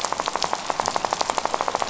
{"label": "biophony, rattle", "recorder": "SoundTrap 500"}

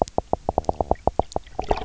{"label": "biophony, knock", "recorder": "SoundTrap 300"}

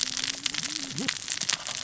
{"label": "biophony, cascading saw", "recorder": "SoundTrap 600 or HydroMoth"}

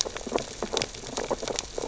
{"label": "biophony, sea urchins (Echinidae)", "recorder": "SoundTrap 600 or HydroMoth"}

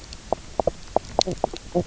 {"label": "biophony, knock croak", "recorder": "SoundTrap 300"}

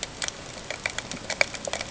{"label": "ambient", "recorder": "HydroMoth"}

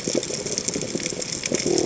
{"label": "biophony", "recorder": "HydroMoth"}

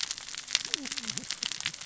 {"label": "biophony, cascading saw", "recorder": "SoundTrap 600 or HydroMoth"}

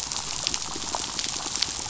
{"label": "biophony, pulse", "recorder": "SoundTrap 500"}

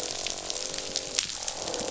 {"label": "biophony, croak", "recorder": "SoundTrap 500"}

